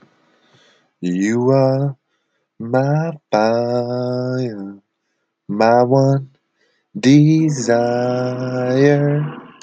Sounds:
Sigh